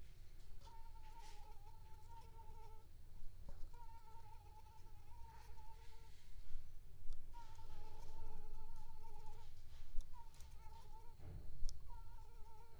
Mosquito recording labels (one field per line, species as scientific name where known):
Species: Anopheles squamosus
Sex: female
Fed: unfed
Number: one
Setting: cup